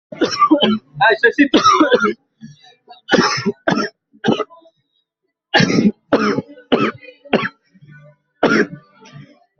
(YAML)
expert_labels:
- quality: poor
  cough_type: unknown
  dyspnea: false
  wheezing: false
  stridor: false
  choking: false
  congestion: false
  nothing: true
  diagnosis: COVID-19
  severity: mild
age: 19
gender: male
respiratory_condition: false
fever_muscle_pain: false
status: COVID-19